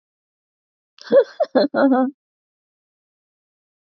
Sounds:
Laughter